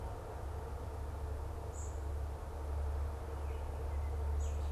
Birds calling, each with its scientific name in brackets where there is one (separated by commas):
unidentified bird, Baltimore Oriole (Icterus galbula)